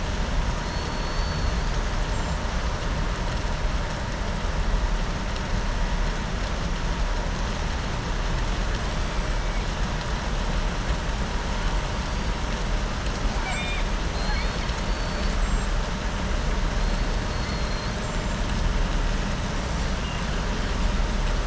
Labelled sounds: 0.6	1.8	killer whale, southern resident, 4.2 to 5.7 kHz
13.3	15.3	killer whale, southern resident, 0.73 to 5.2 kHz
17.3	17.9	killer whale, southern resident, 4.2 to 4.5 kHz

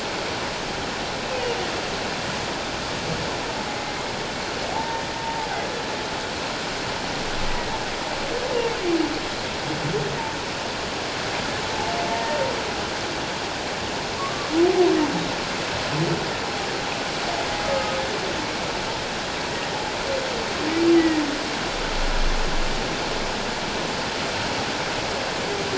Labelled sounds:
3.7	5.0	humpback whale, 0.78 to 2.3 kHz
7.5	7.7	humpback whale, 1.9 to 2.0 kHz
12.1	12.4	humpback whale, 0.88 to 1.9 kHz
14.2	14.5	humpback whale, 1.0 to 1.2 kHz
17.7	18.0	humpback whale, 1.2 to 1.3 kHz
21.0	21.2	humpback whale, 1.8 to 2.0 kHz

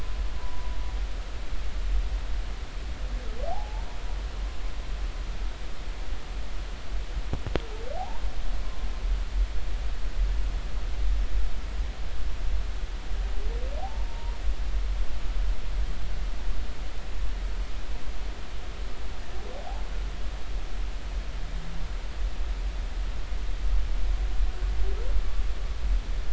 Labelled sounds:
0.4	0.7	humpback whale, 0.93 to 1.0 kHz
3.5	3.9	humpback whale, 0.80 to 0.99 kHz
8.0	8.3	humpback whale, 0.80 to 1.1 kHz
13.8	14.3	humpback whale, 0.80 to 1.0 kHz

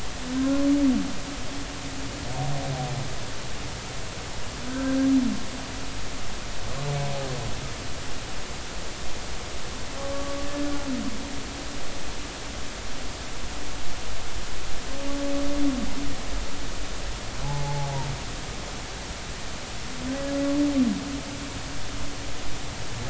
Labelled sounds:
4.7	5.0	humpback whale, 1.5 to 1.7 kHz
10.1	10.4	humpback whale, 1.1 to 1.2 kHz
17.4	18.0	humpback whale, 0.80 to 1.0 kHz

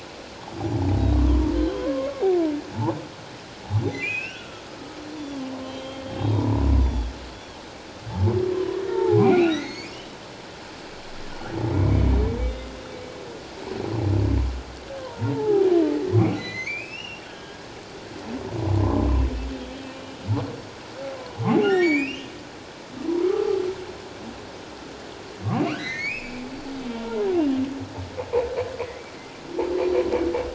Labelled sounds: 1.1	2.2	humpback whale, 0.94 to 3.3 kHz
2.7	3.0	humpback whale, 0.78 to 1.1 kHz
3.9	4.6	humpback whale, 1.3 to 3.1 kHz
5.2	7.1	humpback whale, 0.88 to 5.9 kHz
8.5	9.9	humpback whale, 0.78 to 7.1 kHz
11.7	12.0	humpback whale, 2.1 to 2.4 kHz
15.0	17.6	humpback whale, 0.78 to 6.6 kHz
18.8	19.1	humpback whale, 0.97 to 1.2 kHz
21.4	22.3	humpback whale, 0.78 to 7.4 kHz
23.2	23.6	humpback whale, 1.1 to 1.4 kHz
25.7	26.4	humpback whale, 1.0 to 4.2 kHz
26.9	27.6	humpback whale, 0.88 to 3.0 kHz

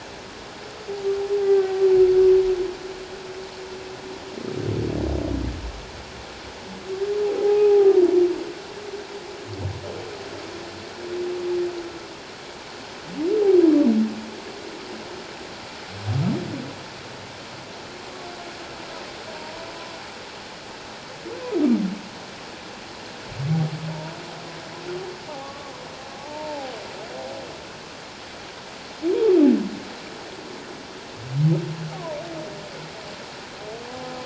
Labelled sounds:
1.4	1.8	humpback whale, 1.1 to 1.6 kHz
7.3	8.0	humpback whale, 0.78 to 0.88 kHz
23.9	24.2	humpback whale, 0.88 to 1.0 kHz
25.4	25.7	humpback whale, 1.0 to 1.2 kHz
26.2	26.7	humpback whale, 0.78 to 0.97 kHz

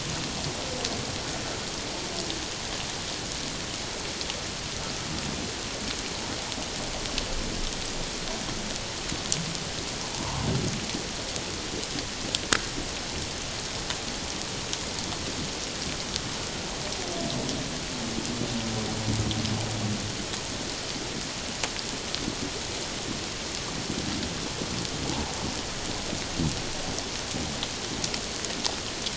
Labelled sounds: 10.1	10.5	humpback whale, 0.81 to 1.2 kHz

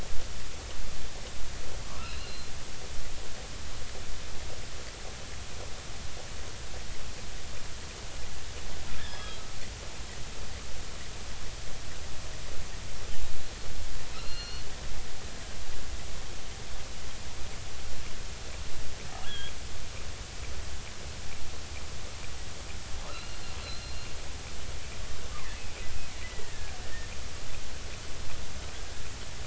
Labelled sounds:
2.0	2.5	killer whale, offshore, 2.5 to 4.3 kHz
9.0	9.4	killer whale, offshore, 3.2 to 3.4 kHz
14.2	14.6	killer whale, offshore, 2.7 to 4.4 kHz
19.3	19.5	killer whale, offshore, 1.5 to 3.5 kHz
23.0	24.0	killer whale, offshore, 2.6 to 4.3 kHz
25.6	27.1	killer whale, offshore, 1.5 to 2.6 kHz

